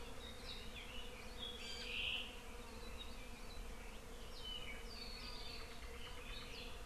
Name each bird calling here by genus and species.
Chlorodrepanis virens, Himatione sanguinea